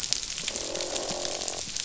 {"label": "biophony, croak", "recorder": "SoundTrap 500"}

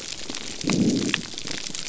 {"label": "biophony", "recorder": "SoundTrap 300"}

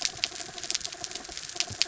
{"label": "anthrophony, mechanical", "recorder": "SoundTrap 300"}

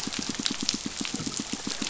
{"label": "biophony, pulse", "recorder": "SoundTrap 500"}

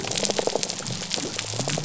{"label": "biophony", "recorder": "SoundTrap 300"}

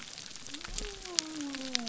{"label": "biophony", "recorder": "SoundTrap 300"}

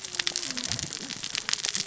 {"label": "biophony, cascading saw", "recorder": "SoundTrap 600 or HydroMoth"}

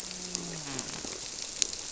{"label": "biophony", "recorder": "SoundTrap 300"}
{"label": "biophony, grouper", "recorder": "SoundTrap 300"}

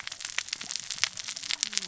{"label": "biophony, cascading saw", "recorder": "SoundTrap 600 or HydroMoth"}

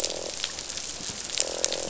{"label": "biophony, croak", "recorder": "SoundTrap 500"}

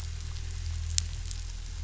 {"label": "anthrophony, boat engine", "recorder": "SoundTrap 500"}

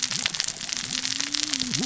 {"label": "biophony, cascading saw", "recorder": "SoundTrap 600 or HydroMoth"}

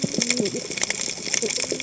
{"label": "biophony, cascading saw", "recorder": "HydroMoth"}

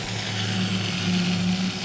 {"label": "anthrophony, boat engine", "recorder": "SoundTrap 500"}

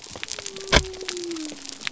{"label": "biophony", "recorder": "SoundTrap 300"}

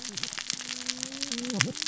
{"label": "biophony, cascading saw", "recorder": "SoundTrap 600 or HydroMoth"}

